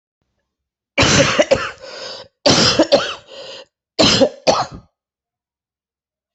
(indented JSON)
{
  "expert_labels": [
    {
      "quality": "good",
      "cough_type": "wet",
      "dyspnea": false,
      "wheezing": false,
      "stridor": false,
      "choking": false,
      "congestion": false,
      "nothing": true,
      "diagnosis": "upper respiratory tract infection",
      "severity": "mild"
    }
  ],
  "age": 41,
  "gender": "female",
  "respiratory_condition": true,
  "fever_muscle_pain": false,
  "status": "symptomatic"
}